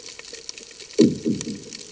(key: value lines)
label: anthrophony, bomb
recorder: HydroMoth